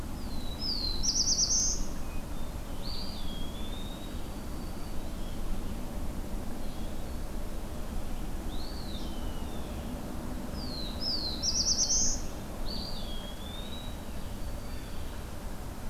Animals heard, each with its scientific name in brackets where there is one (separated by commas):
Black-throated Green Warbler (Setophaga virens), Eastern Wood-Pewee (Contopus virens), Hermit Thrush (Catharus guttatus), Blue Jay (Cyanocitta cristata), Black-throated Blue Warbler (Setophaga caerulescens)